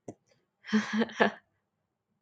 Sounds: Laughter